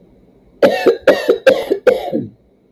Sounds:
Cough